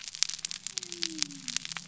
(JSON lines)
{"label": "biophony", "recorder": "SoundTrap 300"}